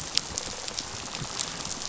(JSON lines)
{"label": "biophony, rattle response", "recorder": "SoundTrap 500"}